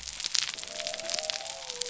{"label": "biophony", "recorder": "SoundTrap 300"}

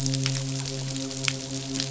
{"label": "biophony, midshipman", "recorder": "SoundTrap 500"}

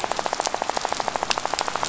{"label": "biophony, rattle", "recorder": "SoundTrap 500"}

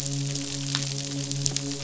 {"label": "biophony, midshipman", "recorder": "SoundTrap 500"}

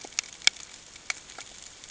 {"label": "ambient", "recorder": "HydroMoth"}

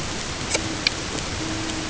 {"label": "ambient", "recorder": "HydroMoth"}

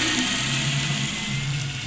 {"label": "anthrophony, boat engine", "recorder": "SoundTrap 500"}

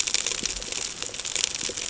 {"label": "ambient", "recorder": "HydroMoth"}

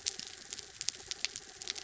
{"label": "anthrophony, mechanical", "recorder": "SoundTrap 300"}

